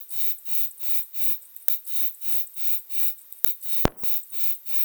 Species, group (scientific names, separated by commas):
Uromenus brevicollis, Orthoptera